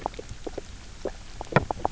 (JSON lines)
{"label": "biophony, knock croak", "recorder": "SoundTrap 300"}